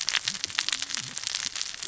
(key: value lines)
label: biophony, cascading saw
recorder: SoundTrap 600 or HydroMoth